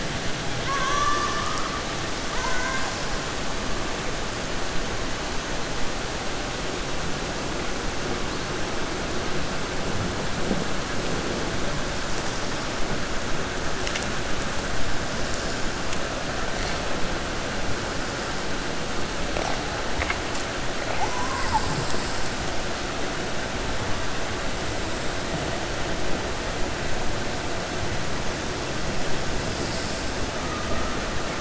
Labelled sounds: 0.5	1.7	killer whale, 0.57 to 6.6 kHz
2.3	2.9	killer whale, 0.68 to 2.2 kHz
30.4	30.9	killer whale, 0.41 to 1.9 kHz

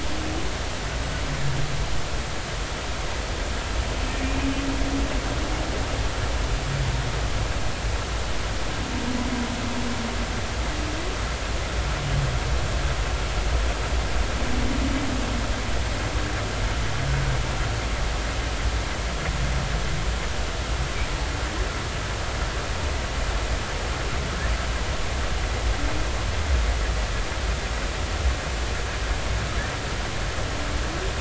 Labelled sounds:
4.2	4.5	humpback whale, 2.3 to 2.6 kHz

